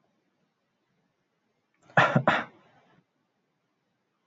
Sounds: Cough